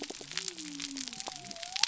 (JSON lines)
{"label": "biophony", "recorder": "SoundTrap 300"}